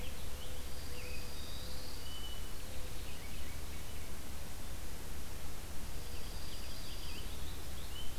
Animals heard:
Dark-eyed Junco (Junco hyemalis), Purple Finch (Haemorhous purpureus)

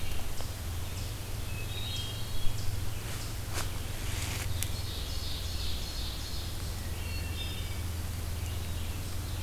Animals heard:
Ovenbird (Seiurus aurocapilla), Eastern Chipmunk (Tamias striatus), Red-eyed Vireo (Vireo olivaceus), Hermit Thrush (Catharus guttatus)

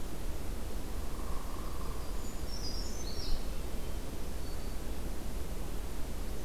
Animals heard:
Black-throated Green Warbler (Setophaga virens), Brown Creeper (Certhia americana), Hairy Woodpecker (Dryobates villosus), Hermit Thrush (Catharus guttatus), Yellow-rumped Warbler (Setophaga coronata)

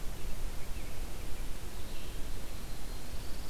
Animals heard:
Yellow-rumped Warbler (Setophaga coronata), American Robin (Turdus migratorius), Red-eyed Vireo (Vireo olivaceus)

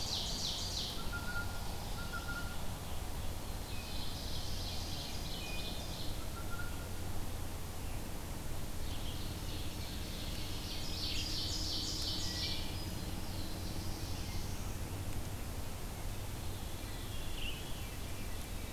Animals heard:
Ovenbird (Seiurus aurocapilla), Black-throated Blue Warbler (Setophaga caerulescens), Blue Jay (Cyanocitta cristata), Veery (Catharus fuscescens), Wood Thrush (Hylocichla mustelina)

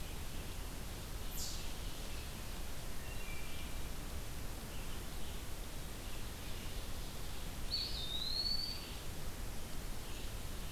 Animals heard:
Wood Thrush (Hylocichla mustelina), Red-eyed Vireo (Vireo olivaceus), Eastern Chipmunk (Tamias striatus), Ovenbird (Seiurus aurocapilla), Eastern Wood-Pewee (Contopus virens)

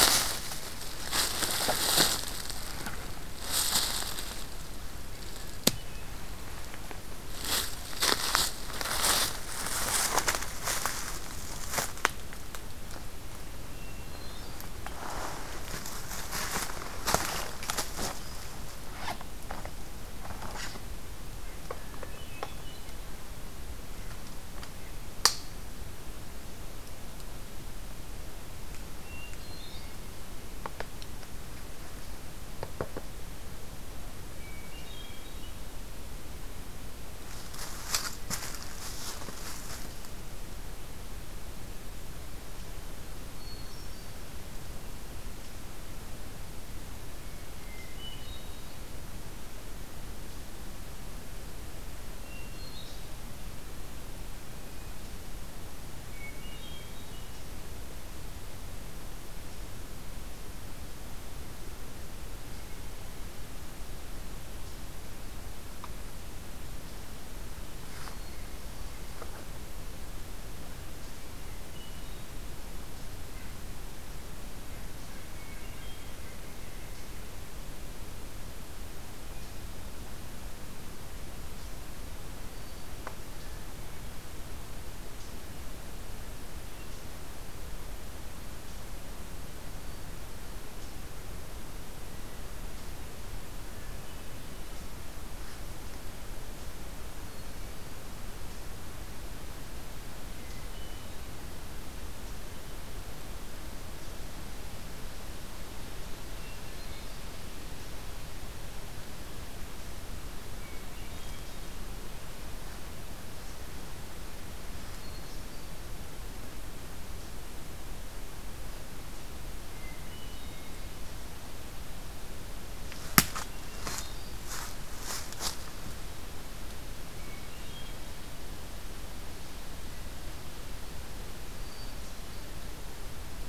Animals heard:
Red-breasted Nuthatch (Sitta canadensis), Hermit Thrush (Catharus guttatus), American Crow (Corvus brachyrhynchos)

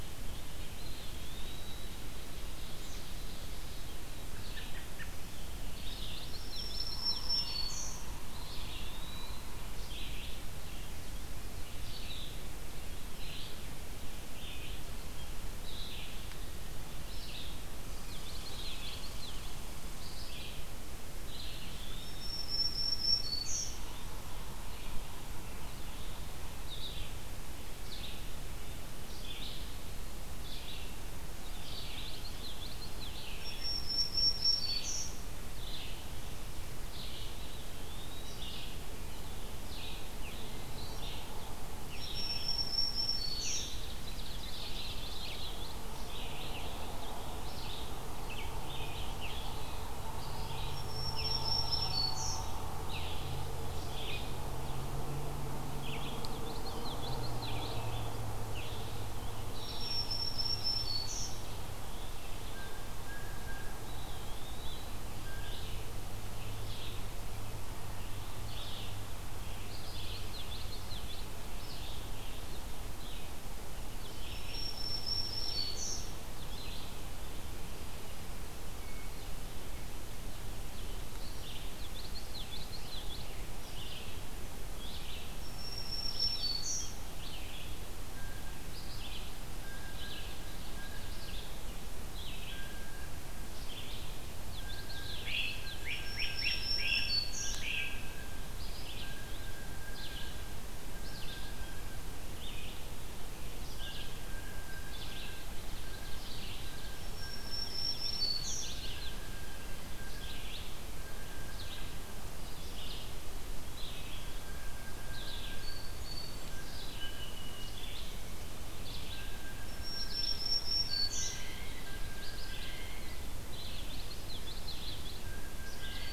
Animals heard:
Black-throated Green Warbler (Setophaga virens), Great Crested Flycatcher (Myiarchus crinitus), Red Squirrel (Tamiasciurus hudsonicus), Eastern Wood-Pewee (Contopus virens), Blue Jay (Cyanocitta cristata), Red-eyed Vireo (Vireo olivaceus), Song Sparrow (Melospiza melodia), American Robin (Turdus migratorius), Common Yellowthroat (Geothlypis trichas)

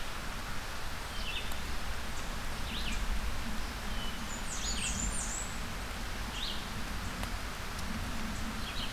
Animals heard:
Blackburnian Warbler (Setophaga fusca), Red-eyed Vireo (Vireo olivaceus)

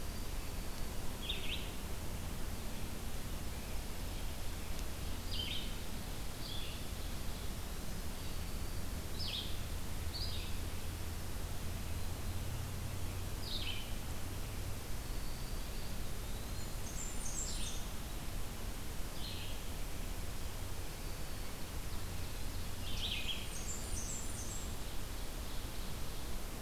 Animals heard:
Eastern Wood-Pewee (Contopus virens), Red-eyed Vireo (Vireo olivaceus), Black-and-white Warbler (Mniotilta varia), Ovenbird (Seiurus aurocapilla), Black-throated Green Warbler (Setophaga virens)

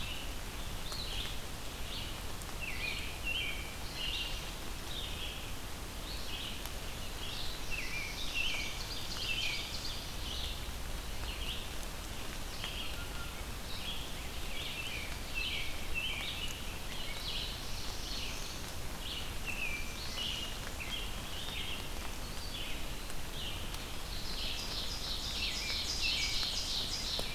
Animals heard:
Black-throated Blue Warbler (Setophaga caerulescens), Red-eyed Vireo (Vireo olivaceus), Ovenbird (Seiurus aurocapilla), American Robin (Turdus migratorius)

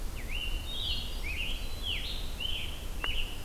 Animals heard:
Hermit Thrush (Catharus guttatus), Scarlet Tanager (Piranga olivacea)

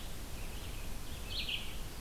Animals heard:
Red-eyed Vireo (Vireo olivaceus)

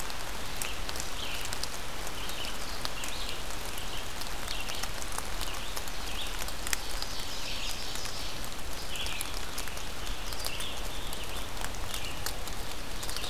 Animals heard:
Ovenbird (Seiurus aurocapilla), Red-eyed Vireo (Vireo olivaceus)

